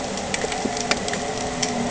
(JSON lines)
{"label": "anthrophony, boat engine", "recorder": "HydroMoth"}